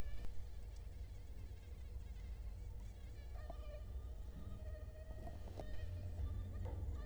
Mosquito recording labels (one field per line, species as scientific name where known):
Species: Culex quinquefasciatus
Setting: cup